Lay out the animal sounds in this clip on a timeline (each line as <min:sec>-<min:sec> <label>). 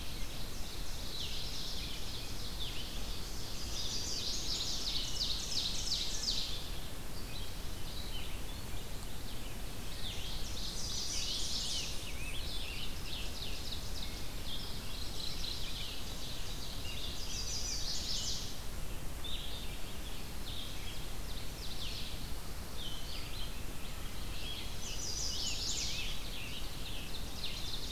0:00.0-0:03.8 Ovenbird (Seiurus aurocapilla)
0:00.0-0:27.9 Red-eyed Vireo (Vireo olivaceus)
0:00.9-0:02.1 Mourning Warbler (Geothlypis philadelphia)
0:03.5-0:04.9 Chestnut-sided Warbler (Setophaga pensylvanica)
0:04.5-0:06.7 Ovenbird (Seiurus aurocapilla)
0:10.1-0:12.1 Ovenbird (Seiurus aurocapilla)
0:10.8-0:13.3 Scarlet Tanager (Piranga olivacea)
0:13.0-0:14.1 Ovenbird (Seiurus aurocapilla)
0:14.8-0:16.1 Mourning Warbler (Geothlypis philadelphia)
0:15.5-0:17.3 Ovenbird (Seiurus aurocapilla)
0:17.1-0:18.5 Chestnut-sided Warbler (Setophaga pensylvanica)
0:20.3-0:22.2 Ovenbird (Seiurus aurocapilla)
0:24.2-0:27.7 Scarlet Tanager (Piranga olivacea)
0:24.6-0:26.0 Chestnut-sided Warbler (Setophaga pensylvanica)
0:27.4-0:27.9 Ovenbird (Seiurus aurocapilla)